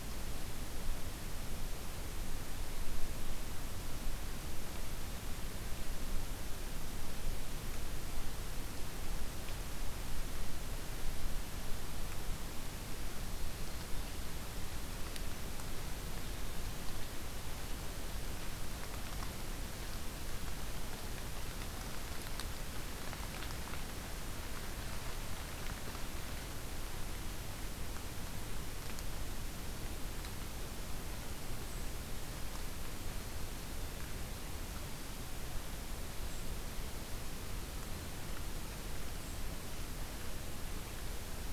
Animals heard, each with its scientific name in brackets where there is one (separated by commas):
Golden-crowned Kinglet (Regulus satrapa)